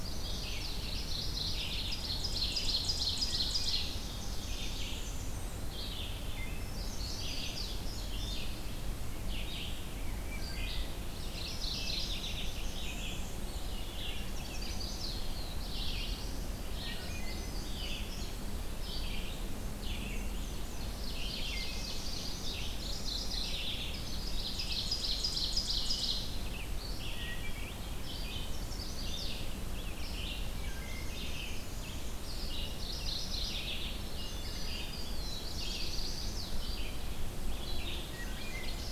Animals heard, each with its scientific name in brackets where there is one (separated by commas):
Red-eyed Vireo (Vireo olivaceus), Indigo Bunting (Passerina cyanea), Chestnut-sided Warbler (Setophaga pensylvanica), Black-throated Blue Warbler (Setophaga caerulescens), Wood Thrush (Hylocichla mustelina), Ovenbird (Seiurus aurocapilla), Eastern Wood-Pewee (Contopus virens), Mourning Warbler (Geothlypis philadelphia), Black-and-white Warbler (Mniotilta varia), Blackburnian Warbler (Setophaga fusca)